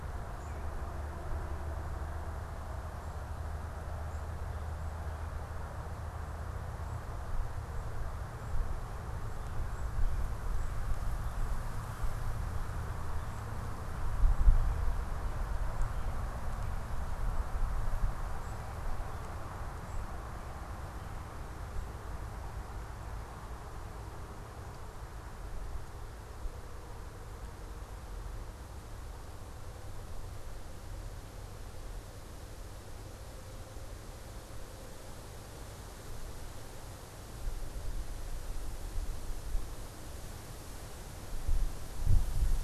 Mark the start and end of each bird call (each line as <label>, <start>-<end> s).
American Robin (Turdus migratorius), 0.0-0.9 s
unidentified bird, 0.0-4.5 s
unidentified bird, 8.1-20.3 s